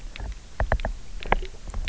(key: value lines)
label: biophony, knock
recorder: SoundTrap 300